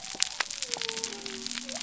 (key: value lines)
label: biophony
recorder: SoundTrap 300